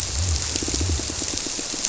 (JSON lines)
{"label": "biophony, squirrelfish (Holocentrus)", "recorder": "SoundTrap 300"}
{"label": "biophony", "recorder": "SoundTrap 300"}